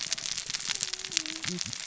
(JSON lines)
{"label": "biophony, cascading saw", "recorder": "SoundTrap 600 or HydroMoth"}